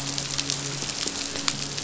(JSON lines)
{"label": "biophony, midshipman", "recorder": "SoundTrap 500"}